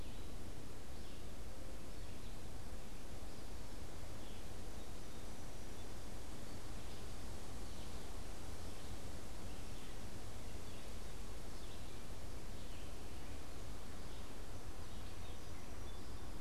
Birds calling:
Red-eyed Vireo (Vireo olivaceus), Song Sparrow (Melospiza melodia)

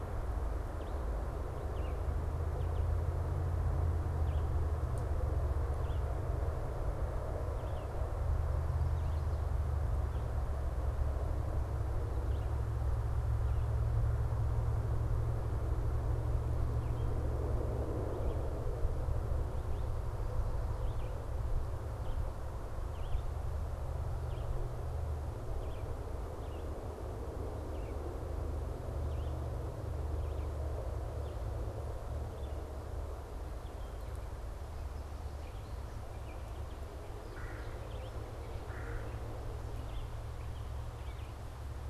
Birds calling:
Red-bellied Woodpecker (Melanerpes carolinus), Red-eyed Vireo (Vireo olivaceus)

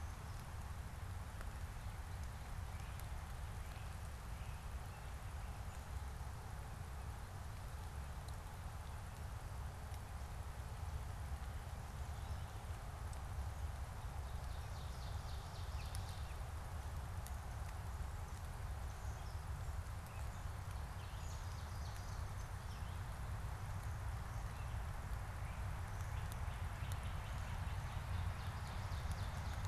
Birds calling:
Great Crested Flycatcher (Myiarchus crinitus), Ovenbird (Seiurus aurocapilla)

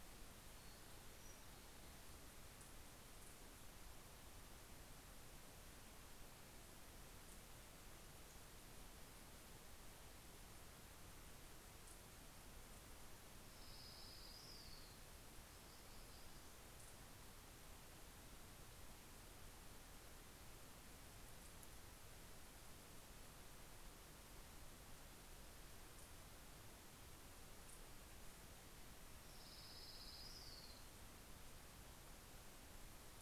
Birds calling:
Orange-crowned Warbler (Leiothlypis celata), Townsend's Warbler (Setophaga townsendi)

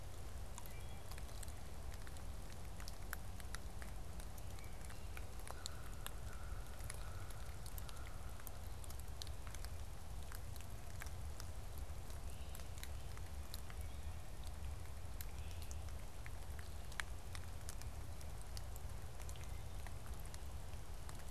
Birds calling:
Wood Thrush (Hylocichla mustelina), Great Crested Flycatcher (Myiarchus crinitus), American Crow (Corvus brachyrhynchos)

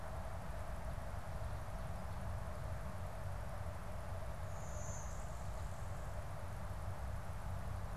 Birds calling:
Blue-winged Warbler (Vermivora cyanoptera)

